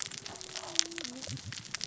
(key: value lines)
label: biophony, cascading saw
recorder: SoundTrap 600 or HydroMoth